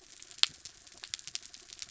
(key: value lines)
label: anthrophony, mechanical
recorder: SoundTrap 300